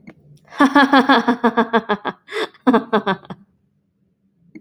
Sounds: Laughter